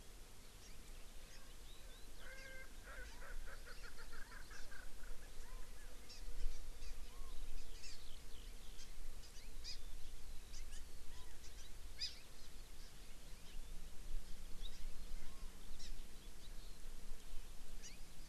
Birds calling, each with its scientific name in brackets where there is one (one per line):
Erckel's Francolin (Pternistis erckelii)
Hawaii Amakihi (Chlorodrepanis virens)
Eurasian Skylark (Alauda arvensis)